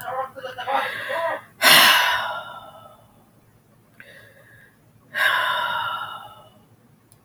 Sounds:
Sigh